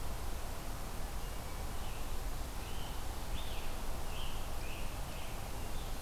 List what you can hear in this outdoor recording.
Hermit Thrush, Scarlet Tanager